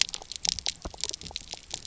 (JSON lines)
{"label": "biophony, pulse", "recorder": "SoundTrap 300"}